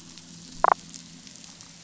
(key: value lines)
label: anthrophony, boat engine
recorder: SoundTrap 500

label: biophony, damselfish
recorder: SoundTrap 500